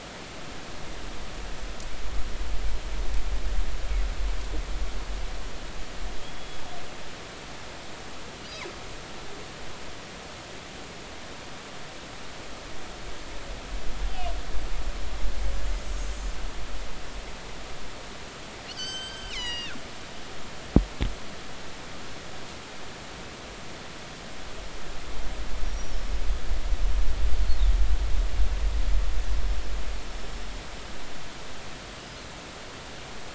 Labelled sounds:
6.2	6.6	killer whale, northern resident, G clan, GG subclan, call N28, 3.2 to 3.4 kHz
14.1	14.3	killer whale, northern resident, G clan, 2.8 to 3.2 kHz
18.7	19.8	killer whale, northern resident, G clan, GG subclan, call N23ii, 1.3 to 7.8 kHz
25.6	25.9	killer whale, northern resident, 5.5 to 5.9 kHz

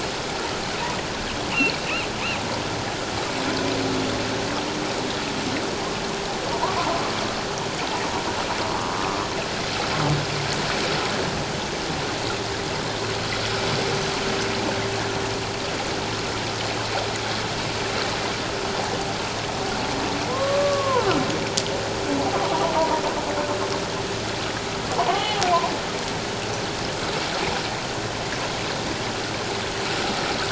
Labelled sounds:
1.5	1.8	humpback whale, 3.9 to 4.5 kHz
6.8	7.0	humpback whale, 0.84 to 1.2 kHz
20.3	21.1	humpback whale, 0.88 to 1.2 kHz
22.8	23.0	humpback whale, 0.88 to 1.0 kHz
25.0	25.5	humpback whale, 0.78 to 3.1 kHz

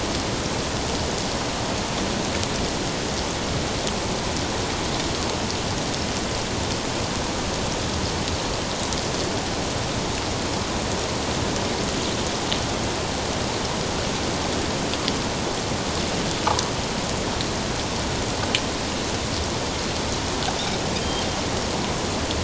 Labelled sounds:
20.9	21.3	Pacific white-sided dolphin, 3.0 to 5.0 kHz

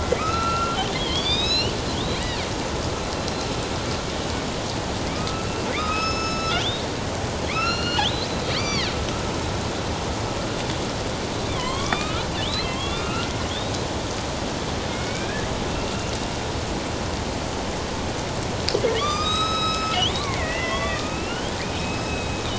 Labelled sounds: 0.0	1.7	killer whale, northern resident, A clan, AB subclan, 1.1 to 6.9 kHz
5.0	8.9	killer whale, northern resident, A clan, AB subclan, 1.0 to 6.7 kHz
11.6	13.7	killer whale, northern resident, A clan, AB subclan, 0.94 to 4.3 kHz
14.9	16.1	killer whale, northern resident, A clan, AB subclan, 1.5 to 2.9 kHz
18.9	22.4	killer whale, northern resident, A clan, AB subclan, 1.0 to 7.8 kHz

